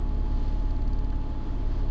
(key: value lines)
label: anthrophony, boat engine
recorder: SoundTrap 300